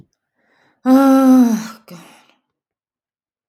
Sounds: Sigh